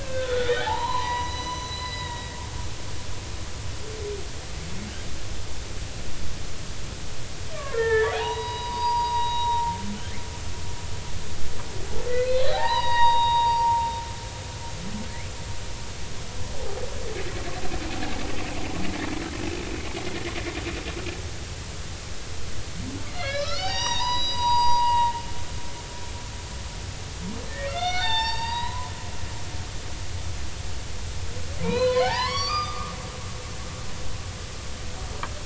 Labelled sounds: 0.0	2.4	humpback whale, 0.80 to 6.0 kHz
7.7	9.8	humpback whale, 0.80 to 5.0 kHz
12.2	13.9	humpback whale, 0.80 to 5.1 kHz
23.1	25.2	humpback whale, 0.80 to 5.9 kHz
27.5	28.9	humpback whale, 0.80 to 5.6 kHz
31.6	32.9	humpback whale, 0.80 to 6.1 kHz

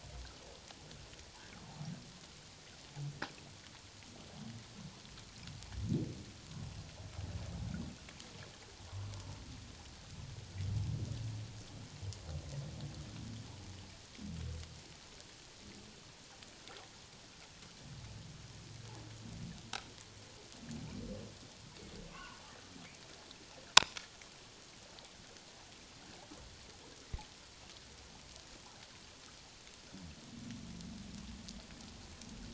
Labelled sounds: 9.0	9.3	humpback whale, 0.97 to 1.3 kHz
22.1	22.4	humpback whale, 0.91 to 3.0 kHz

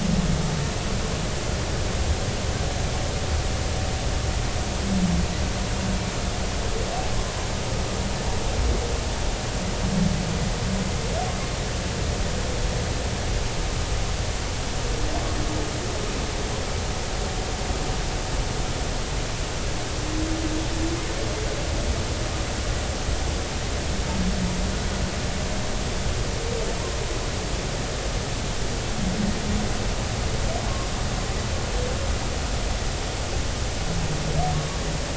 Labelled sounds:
34.5	34.8	humpback whale, 1.1 to 1.2 kHz

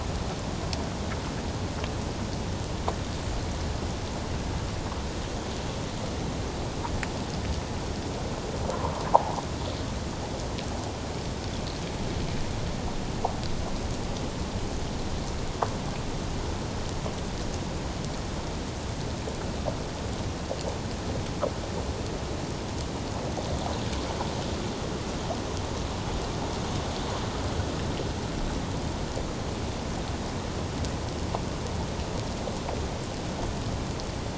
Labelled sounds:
9.1	9.3	water noise, 0.78 to 1.1 kHz

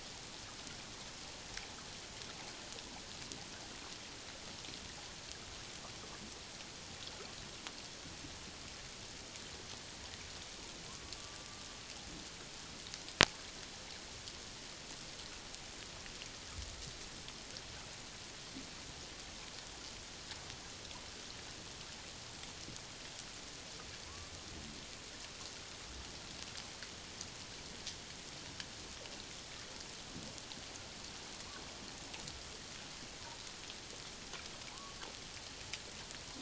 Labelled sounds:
24.0	24.3	killer whale, Bigg's (transient), 0.91 to 1.2 kHz
34.7	35.0	killer whale, Bigg's (transient), 0.81 to 1.2 kHz

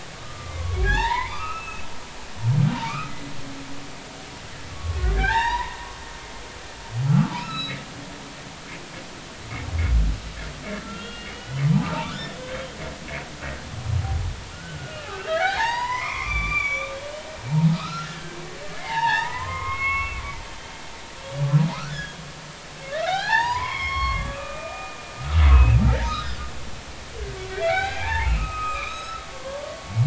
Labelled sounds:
0.2	1.9	humpback whale, 0.80 to 3.8 kHz
2.8	3.1	humpback whale, 1.1 to 2.7 kHz
4.7	5.8	humpback whale, 0.80 to 5.8 kHz
7.0	7.8	humpback whale, 1.1 to 4.1 kHz
10.8	12.8	humpback whale, 0.80 to 5.4 kHz
14.0	17.0	humpback whale, 0.80 to 7.1 kHz
17.7	20.2	humpback whale, 0.80 to 3.8 kHz
21.9	25.8	humpback whale, 0.80 to 5.5 kHz
26.0	26.5	humpback whale, 1.2 to 4.2 kHz
27.5	29.6	humpback whale, 0.80 to 6.6 kHz

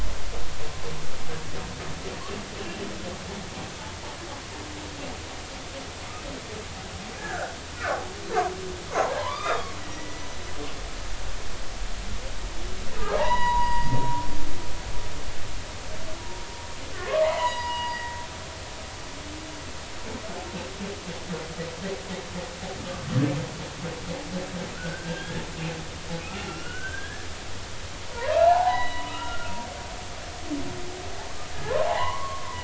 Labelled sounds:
7.2	8.0	humpback whale, 1.1 to 1.8 kHz
8.9	10.3	humpback whale, 0.80 to 5.0 kHz
12.9	14.9	humpback whale, 0.80 to 5.0 kHz
16.9	18.1	humpback whale, 0.80 to 4.9 kHz
24.7	25.4	humpback whale, 1.3 to 1.9 kHz
26.3	27.3	humpback whale, 1.3 to 3.0 kHz
28.0	29.5	humpback whale, 0.80 to 4.0 kHz
31.5	32.6	humpback whale, 0.80 to 2.2 kHz

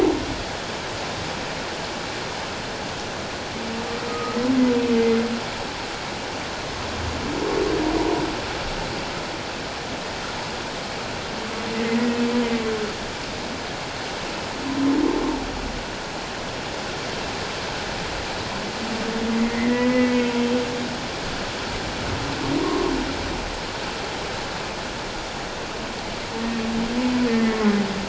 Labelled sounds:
4.1	5.2	humpback whale, 1.2 to 2.1 kHz
19.4	20.3	humpback whale, 0.94 to 2.3 kHz
22.6	22.9	humpback whale, 0.94 to 1.1 kHz
27.3	27.6	humpback whale, 1.9 to 2.1 kHz

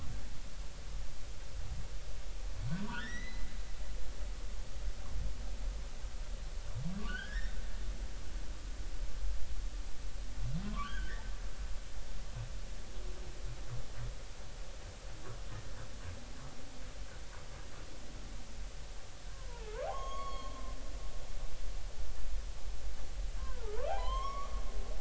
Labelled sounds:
2.8	3.5	humpback whale, 0.90 to 6.1 kHz
7.1	7.6	humpback whale, 1.3 to 3.9 kHz
10.7	11.3	humpback whale, 0.99 to 3.3 kHz
19.5	20.6	humpback whale, 0.80 to 6.7 kHz
23.4	24.5	humpback whale, 0.80 to 3.4 kHz

